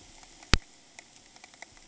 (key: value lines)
label: ambient
recorder: HydroMoth